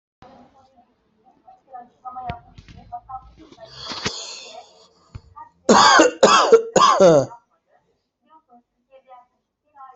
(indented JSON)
{
  "expert_labels": [
    {
      "quality": "good",
      "cough_type": "dry",
      "dyspnea": false,
      "wheezing": false,
      "stridor": false,
      "choking": false,
      "congestion": false,
      "nothing": true,
      "diagnosis": "healthy cough",
      "severity": "pseudocough/healthy cough"
    }
  ],
  "gender": "male",
  "respiratory_condition": false,
  "fever_muscle_pain": false,
  "status": "COVID-19"
}